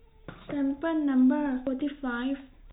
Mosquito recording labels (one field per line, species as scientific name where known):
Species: no mosquito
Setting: cup